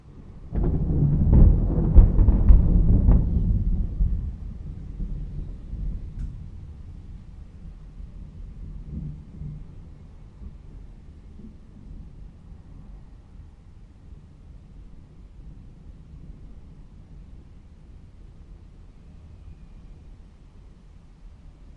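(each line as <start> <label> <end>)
0.0 White noise. 21.8
0.5 Rumbling fades away. 6.4
8.9 A faint rumble. 9.7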